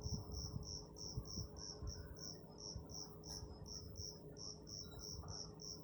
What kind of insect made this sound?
orthopteran